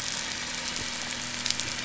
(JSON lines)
{"label": "anthrophony, boat engine", "recorder": "SoundTrap 500"}